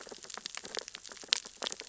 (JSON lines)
{"label": "biophony, sea urchins (Echinidae)", "recorder": "SoundTrap 600 or HydroMoth"}